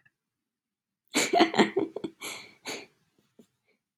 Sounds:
Laughter